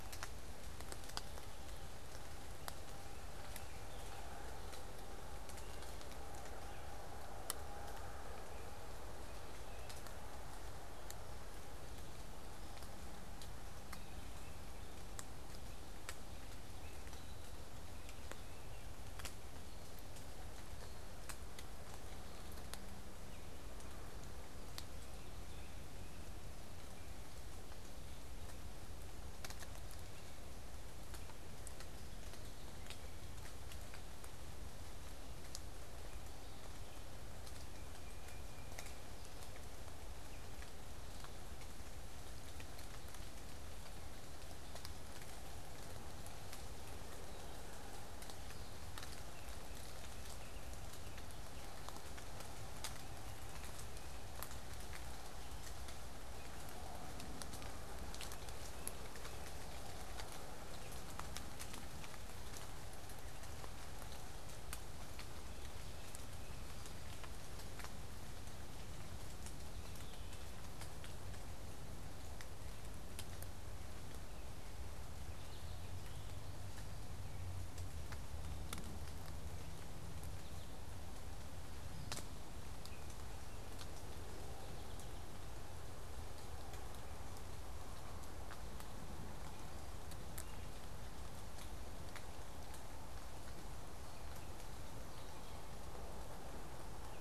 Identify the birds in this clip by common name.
American Goldfinch